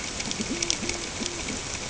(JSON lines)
{"label": "ambient", "recorder": "HydroMoth"}